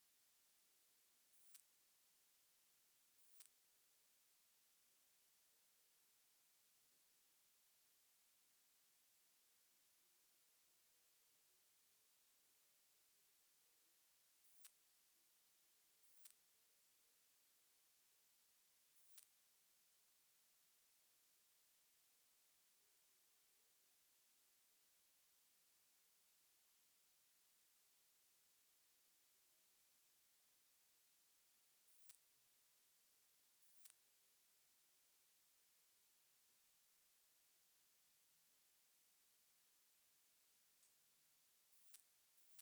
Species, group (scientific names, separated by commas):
Poecilimon macedonicus, Orthoptera